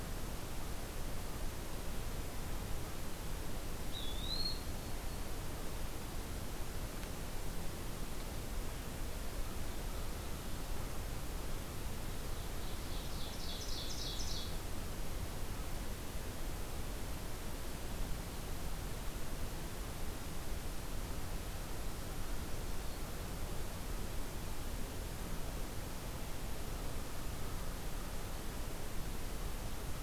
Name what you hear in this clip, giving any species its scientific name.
Contopus virens, Setophaga virens, Seiurus aurocapilla